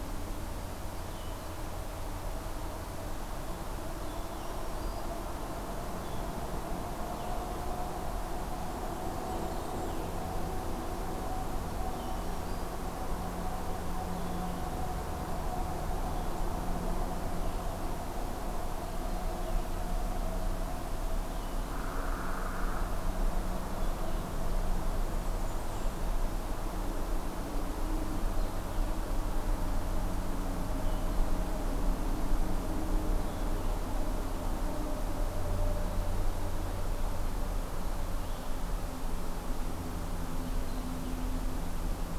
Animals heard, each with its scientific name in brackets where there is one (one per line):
Hairy Woodpecker (Dryobates villosus)
Blackburnian Warbler (Setophaga fusca)
Black-throated Green Warbler (Setophaga virens)
Blue-headed Vireo (Vireo solitarius)